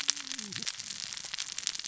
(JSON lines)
{"label": "biophony, cascading saw", "recorder": "SoundTrap 600 or HydroMoth"}